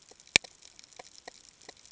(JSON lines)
{"label": "ambient", "recorder": "HydroMoth"}